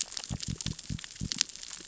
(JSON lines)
{"label": "biophony", "recorder": "SoundTrap 600 or HydroMoth"}